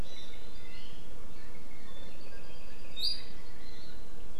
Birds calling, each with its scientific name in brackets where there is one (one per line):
Iiwi (Drepanis coccinea)
Apapane (Himatione sanguinea)